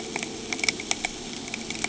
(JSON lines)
{"label": "anthrophony, boat engine", "recorder": "HydroMoth"}